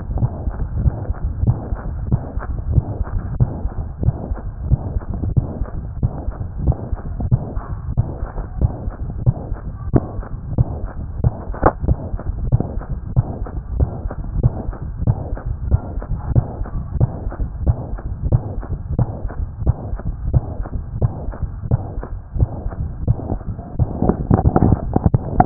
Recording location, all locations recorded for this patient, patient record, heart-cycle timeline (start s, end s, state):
mitral valve (MV)
aortic valve (AV)+pulmonary valve (PV)+tricuspid valve (TV)+mitral valve (MV)
#Age: Child
#Sex: Female
#Height: 149.0 cm
#Weight: 33.9 kg
#Pregnancy status: False
#Murmur: Present
#Murmur locations: aortic valve (AV)+mitral valve (MV)+pulmonary valve (PV)+tricuspid valve (TV)
#Most audible location: tricuspid valve (TV)
#Systolic murmur timing: Holosystolic
#Systolic murmur shape: Plateau
#Systolic murmur grading: III/VI or higher
#Systolic murmur pitch: Medium
#Systolic murmur quality: Blowing
#Diastolic murmur timing: nan
#Diastolic murmur shape: nan
#Diastolic murmur grading: nan
#Diastolic murmur pitch: nan
#Diastolic murmur quality: nan
#Outcome: Abnormal
#Campaign: 2015 screening campaign
0.00	3.36	unannotated
3.36	3.52	S1
3.52	3.62	systole
3.62	3.72	S2
3.72	4.02	diastole
4.02	4.16	S1
4.16	4.28	systole
4.28	4.38	S2
4.38	4.64	diastole
4.64	4.80	S1
4.80	4.92	systole
4.92	5.02	S2
5.02	5.30	diastole
5.30	5.46	S1
5.46	5.58	systole
5.58	5.68	S2
5.68	5.98	diastole
5.98	6.12	S1
6.12	6.24	systole
6.24	6.34	S2
6.34	6.60	diastole
6.60	6.76	S1
6.76	6.88	systole
6.88	7.00	S2
7.00	7.30	diastole
7.30	7.44	S1
7.44	7.54	systole
7.54	7.64	S2
7.64	7.94	diastole
7.94	8.06	S1
8.06	8.16	systole
8.16	8.28	S2
8.28	8.58	diastole
8.58	8.72	S1
8.72	8.84	systole
8.84	8.94	S2
8.94	9.26	diastole
9.26	9.38	S1
9.38	9.50	systole
9.50	9.58	S2
9.58	9.88	diastole
9.88	10.02	S1
10.02	10.16	systole
10.16	10.24	S2
10.24	10.54	diastole
10.54	10.68	S1
10.68	10.80	systole
10.80	10.88	S2
10.88	11.18	diastole
11.18	11.34	S1
11.34	11.46	systole
11.46	11.56	S2
11.56	11.84	diastole
11.84	11.98	S1
11.98	12.11	systole
12.11	12.20	S2
12.20	12.52	diastole
12.52	12.64	S1
12.64	12.74	systole
12.74	12.84	S2
12.84	13.14	diastole
13.14	13.26	S1
13.26	13.40	systole
13.40	13.48	S2
13.48	13.72	diastole
13.72	13.90	S1
13.90	14.02	systole
14.02	14.12	S2
14.12	14.36	diastole
14.36	14.54	S1
14.54	14.64	systole
14.64	14.74	S2
14.74	15.00	diastole
15.00	15.16	S1
15.16	15.30	systole
15.30	15.38	S2
15.38	15.64	diastole
15.64	15.82	S1
15.82	15.93	systole
15.93	16.04	S2
16.04	16.28	diastole
16.28	16.46	S1
16.46	16.57	systole
16.57	16.68	S2
16.68	16.96	diastole
16.96	17.12	S1
17.12	17.22	systole
17.22	17.34	S2
17.34	17.62	diastole
17.62	17.76	S1
17.76	17.89	systole
17.89	18.00	S2
18.00	18.24	diastole
18.24	18.42	S1
18.42	18.56	systole
18.56	18.64	S2
18.64	18.92	diastole
18.92	19.08	S1
19.08	19.22	systole
19.22	19.32	S2
19.32	19.62	diastole
19.62	19.76	S1
19.76	19.89	systole
19.89	20.00	S2
20.00	20.26	diastole
20.26	20.44	S1
20.44	20.56	systole
20.56	20.66	S2
20.66	21.00	diastole
21.00	21.14	S1
21.14	21.24	systole
21.24	21.34	S2
21.34	21.70	diastole
21.70	21.82	S1
21.82	21.95	systole
21.95	22.04	S2
22.04	22.36	diastole
22.36	22.54	S1
22.54	22.63	systole
22.63	22.72	S2
22.72	23.02	diastole
23.02	23.18	S1
23.18	23.30	systole
23.30	23.40	S2
23.40	23.75	diastole
23.75	23.90	S1
23.90	25.46	unannotated